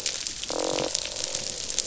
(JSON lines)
{"label": "biophony, croak", "recorder": "SoundTrap 500"}